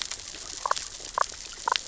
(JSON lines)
{"label": "biophony, damselfish", "recorder": "SoundTrap 600 or HydroMoth"}